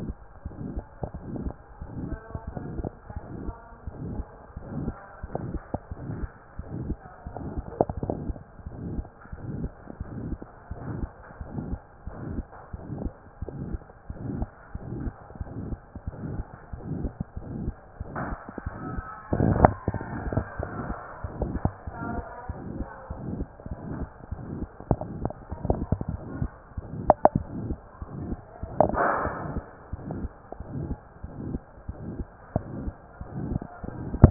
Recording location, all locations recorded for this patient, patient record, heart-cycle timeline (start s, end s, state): mitral valve (MV)
aortic valve (AV)+pulmonary valve (PV)+tricuspid valve (TV)+mitral valve (MV)
#Age: Child
#Sex: Male
#Height: 131.0 cm
#Weight: 32.5 kg
#Pregnancy status: False
#Murmur: Present
#Murmur locations: aortic valve (AV)+mitral valve (MV)+pulmonary valve (PV)+tricuspid valve (TV)
#Most audible location: pulmonary valve (PV)
#Systolic murmur timing: Holosystolic
#Systolic murmur shape: Plateau
#Systolic murmur grading: III/VI or higher
#Systolic murmur pitch: High
#Systolic murmur quality: Harsh
#Diastolic murmur timing: nan
#Diastolic murmur shape: nan
#Diastolic murmur grading: nan
#Diastolic murmur pitch: nan
#Diastolic murmur quality: nan
#Outcome: Abnormal
#Campaign: 2015 screening campaign
0.00	8.63	unannotated
8.63	8.75	S1
8.75	8.88	systole
8.88	9.04	S2
9.04	9.29	diastole
9.29	9.41	S1
9.41	9.58	systole
9.58	9.70	S2
9.70	9.96	diastole
9.96	10.09	S1
10.09	10.29	systole
10.29	10.42	S2
10.42	10.69	diastole
10.69	10.80	S1
10.80	10.98	systole
10.98	11.10	S2
11.10	11.34	diastole
11.34	11.49	S1
11.49	11.67	systole
11.67	11.78	S2
11.78	12.02	diastole
12.02	12.16	S1
12.16	12.30	systole
12.30	12.44	S2
12.44	12.70	diastole
12.70	12.83	S1
12.83	13.02	systole
13.02	13.12	S2
13.12	13.38	diastole
13.38	13.51	S1
13.51	13.68	systole
13.68	13.84	S2
13.84	14.06	diastole
14.06	14.19	S1
14.19	14.37	systole
14.37	14.48	S2
14.48	14.72	diastole
14.72	14.85	S1
14.85	15.00	systole
15.00	15.12	S2
15.12	15.36	diastole
15.36	15.50	S1
15.50	15.67	systole
15.67	15.80	S2
15.80	16.03	diastole
16.03	16.16	S1
16.16	34.30	unannotated